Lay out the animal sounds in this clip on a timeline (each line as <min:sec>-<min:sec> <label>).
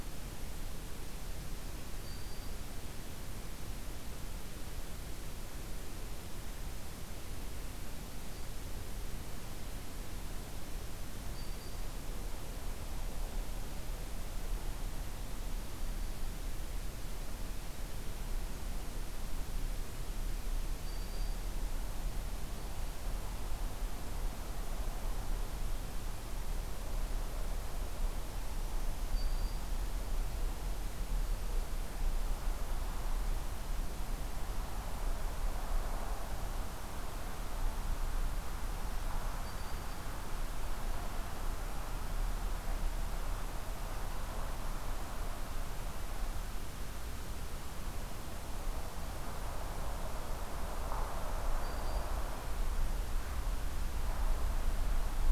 0:02.0-0:02.8 Black-throated Green Warbler (Setophaga virens)
0:11.2-0:12.2 Black-throated Green Warbler (Setophaga virens)
0:20.7-0:21.7 Black-throated Green Warbler (Setophaga virens)
0:29.0-0:29.9 Black-throated Green Warbler (Setophaga virens)
0:39.3-0:40.1 Black-throated Green Warbler (Setophaga virens)
0:51.5-0:52.2 Black-throated Green Warbler (Setophaga virens)